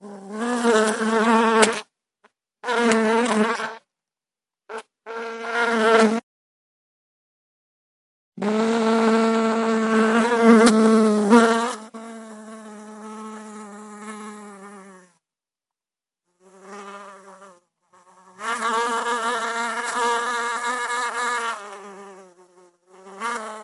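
0.0s A bee buzzes indoors. 6.2s
8.4s A bee buzzes indoors. 15.2s
16.4s A bee buzzes indoors. 23.6s

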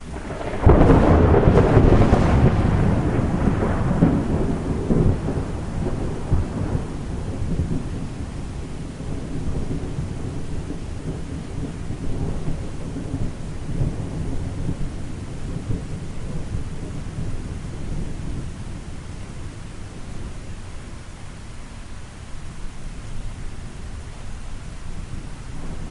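0.0s Thunder rumbles in the distance and fades out slowly. 25.9s

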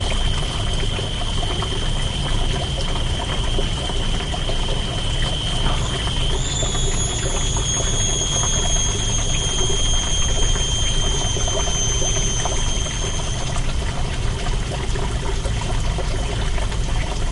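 0.0s Jungle ambience with fluctuating sounds of water and insects, including moments of quiet and intense cicada calls. 6.4s
6.6s Cicadas and insects of varying loudness create a dynamic rainforest ambience near a tropical stream. 12.8s
13.0s Cicadas and insects create a dynamic rainforest ambience near a tropical stream. 17.3s

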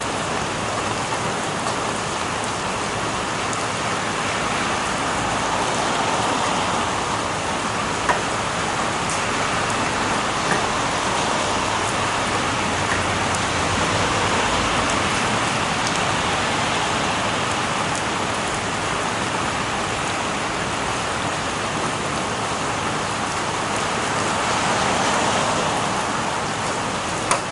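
0.0s Constant loud rain outdoors. 27.5s

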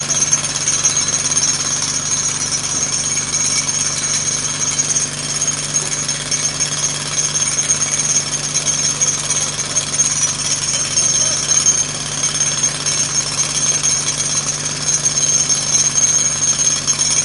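0.0s A mechanical device is drilling loudly and jarringly, possibly against rock or asphalt. 17.2s

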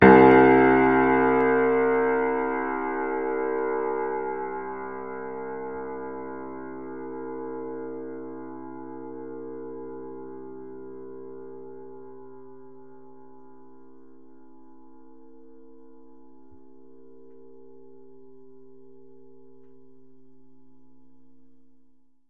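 0.0s A single piano tone playing. 4.7s
0.0s A piano plays with an echo. 12.1s

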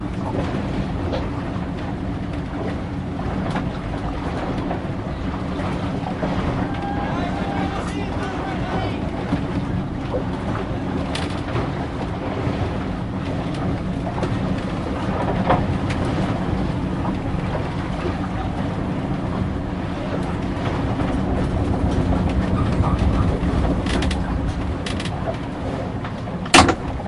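0.0s A wooden boat sails on water with splashing and wood cracking sounds at a moderate speed. 27.1s
7.5s Men screaming at each other in the distance. 9.7s
26.5s A single thud. 26.8s

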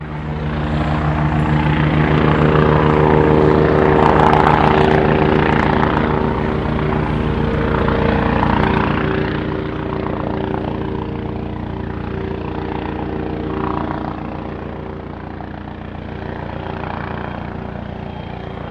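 0.0s A helicopter is approaching. 9.7s
9.7s A helicopter flying away, gradually fading. 18.7s

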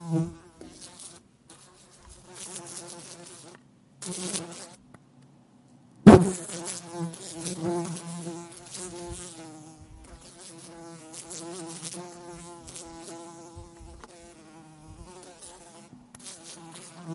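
0.0s A fly buzzes repeatedly near a window. 5.0s
6.1s A fly bumps into a window. 6.4s
6.4s A fly buzzes repeatedly near a window. 17.1s

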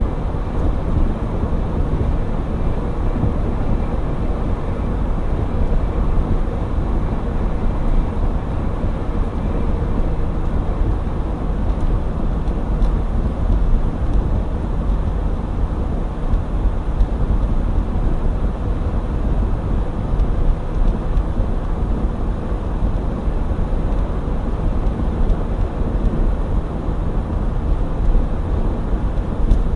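0.0s Constant low hum of a car engine blended with the soft whoosh of passing wind. 29.8s

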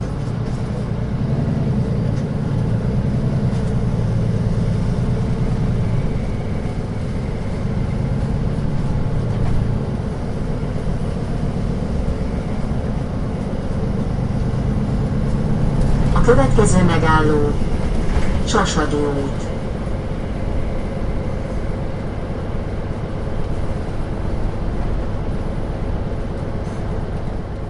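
0.1s A jet takes off with a steady engine hum and background passenger chatter. 14.8s
15.0s A jet takes off and lands with ambient airplane interior sounds, engine hum, passenger chatter, and occasional announcements over the PA system. 19.7s
19.9s A jet takes off with a steady engine hum and background passenger chatter. 27.7s

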